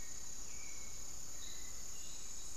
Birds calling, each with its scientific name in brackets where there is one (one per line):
unidentified bird
Thrush-like Wren (Campylorhynchus turdinus)
Hauxwell's Thrush (Turdus hauxwelli)